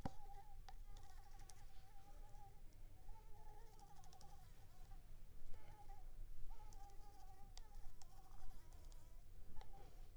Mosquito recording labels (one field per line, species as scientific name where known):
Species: Anopheles arabiensis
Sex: female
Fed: unfed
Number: one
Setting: cup